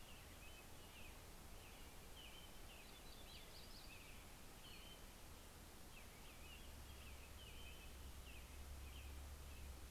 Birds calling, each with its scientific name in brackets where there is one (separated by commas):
American Robin (Turdus migratorius), Yellow-rumped Warbler (Setophaga coronata), Townsend's Solitaire (Myadestes townsendi)